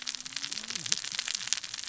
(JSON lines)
{"label": "biophony, cascading saw", "recorder": "SoundTrap 600 or HydroMoth"}